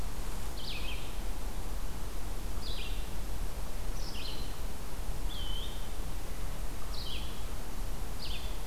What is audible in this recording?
Red-eyed Vireo, Eastern Wood-Pewee